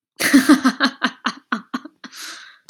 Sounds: Laughter